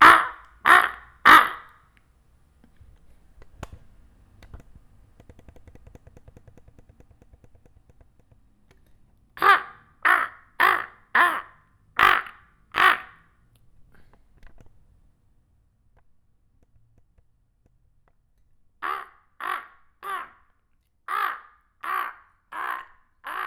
is there only one bird?
yes